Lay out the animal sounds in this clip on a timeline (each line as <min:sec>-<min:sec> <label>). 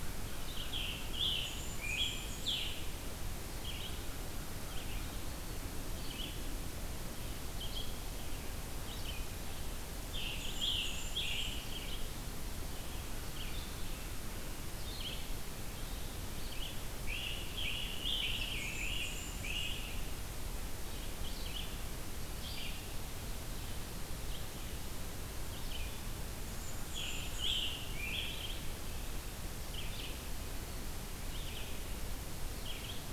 0:00.3-0:02.8 Scarlet Tanager (Piranga olivacea)
0:01.3-0:02.8 Black-and-white Warbler (Mniotilta varia)
0:03.4-0:09.5 Red-eyed Vireo (Vireo olivaceus)
0:10.0-0:12.3 Scarlet Tanager (Piranga olivacea)
0:10.2-0:12.0 Black-and-white Warbler (Mniotilta varia)
0:12.4-0:16.8 Red-eyed Vireo (Vireo olivaceus)
0:16.9-0:19.8 Great Crested Flycatcher (Myiarchus crinitus)
0:16.9-0:20.2 Scarlet Tanager (Piranga olivacea)
0:18.3-0:19.9 Black-and-white Warbler (Mniotilta varia)
0:20.7-0:26.0 Red-eyed Vireo (Vireo olivaceus)
0:26.4-0:27.9 Black-and-white Warbler (Mniotilta varia)
0:26.8-0:28.9 Scarlet Tanager (Piranga olivacea)
0:29.2-0:33.1 Red-eyed Vireo (Vireo olivaceus)